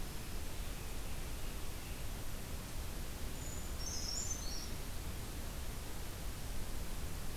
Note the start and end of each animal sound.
0.0s-0.4s: Black-throated Green Warbler (Setophaga virens)
0.4s-2.1s: Scarlet Tanager (Piranga olivacea)
3.3s-4.7s: Brown Creeper (Certhia americana)

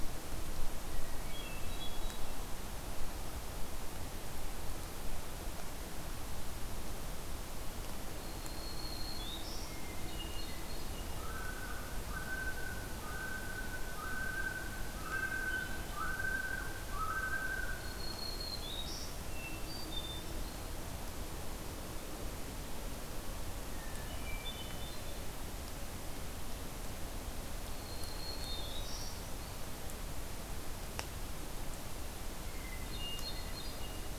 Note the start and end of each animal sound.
0.8s-2.5s: Hermit Thrush (Catharus guttatus)
8.1s-9.7s: Black-throated Green Warbler (Setophaga virens)
9.7s-11.1s: Hermit Thrush (Catharus guttatus)
11.1s-17.9s: Common Loon (Gavia immer)
15.0s-16.1s: Hermit Thrush (Catharus guttatus)
17.8s-19.1s: Black-throated Green Warbler (Setophaga virens)
19.3s-20.8s: Hermit Thrush (Catharus guttatus)
23.7s-25.2s: Hermit Thrush (Catharus guttatus)
27.8s-29.2s: Black-throated Green Warbler (Setophaga virens)
32.4s-34.2s: Hermit Thrush (Catharus guttatus)

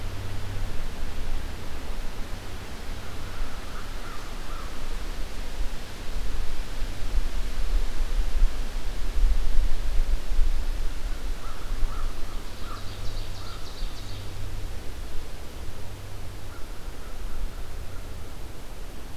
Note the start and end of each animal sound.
2.8s-4.8s: American Crow (Corvus brachyrhynchos)
11.3s-13.7s: American Crow (Corvus brachyrhynchos)
12.2s-14.3s: Ovenbird (Seiurus aurocapilla)
16.3s-18.4s: American Crow (Corvus brachyrhynchos)

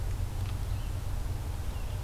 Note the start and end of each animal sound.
0.3s-2.0s: Red-eyed Vireo (Vireo olivaceus)

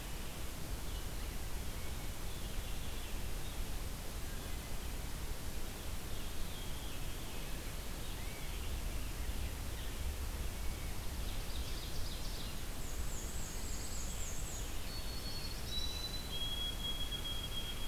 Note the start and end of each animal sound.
6.2s-7.6s: Veery (Catharus fuscescens)
10.9s-12.8s: Ovenbird (Seiurus aurocapilla)
12.6s-14.9s: Black-and-white Warbler (Mniotilta varia)
13.1s-14.1s: Pine Warbler (Setophaga pinus)
14.7s-16.2s: Black-throated Blue Warbler (Setophaga caerulescens)
14.7s-17.9s: White-throated Sparrow (Zonotrichia albicollis)

